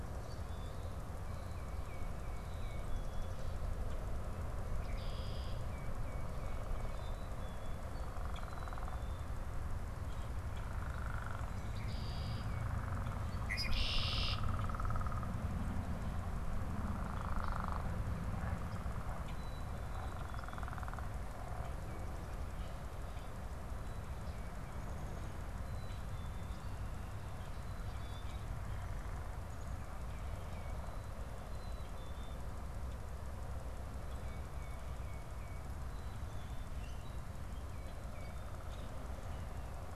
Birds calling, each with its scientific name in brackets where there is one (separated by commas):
Common Grackle (Quiscalus quiscula), Tufted Titmouse (Baeolophus bicolor), Red-winged Blackbird (Agelaius phoeniceus), Black-capped Chickadee (Poecile atricapillus)